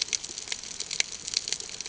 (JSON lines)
{"label": "ambient", "recorder": "HydroMoth"}